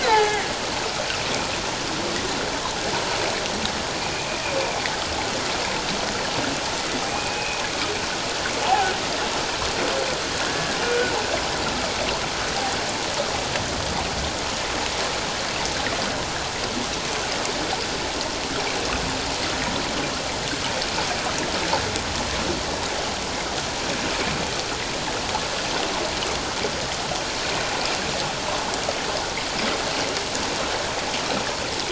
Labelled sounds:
0.0	0.5	humpback whale, 0.78 to 2.3 kHz
4.0	4.3	humpback whale, 2.3 to 2.6 kHz
7.1	7.6	humpback whale, 2.3 to 2.6 kHz
10.5	11.1	humpback whale, 1.4 to 1.8 kHz

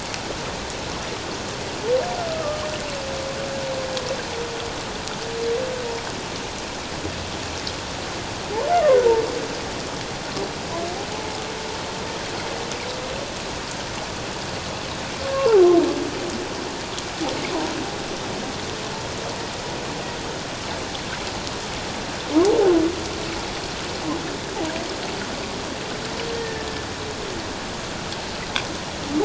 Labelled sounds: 2.3	2.6	humpback whale, 1.1 to 1.4 kHz
15.3	15.6	humpback whale, 0.78 to 1.2 kHz
26.3	26.7	humpback whale, 1.7 to 1.9 kHz

